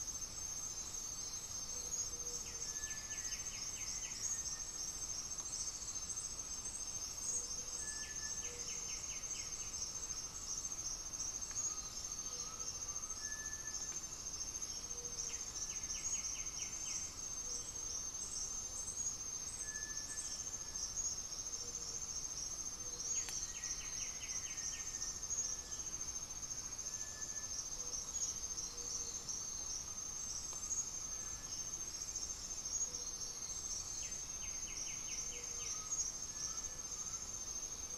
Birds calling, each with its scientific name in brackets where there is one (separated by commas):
White-winged Becard (Pachyramphus polychopterus), Cinereous Tinamou (Crypturellus cinereus), Undulated Tinamou (Crypturellus undulatus), Gray-fronted Dove (Leptotila rufaxilla), Black-faced Antthrush (Formicarius analis)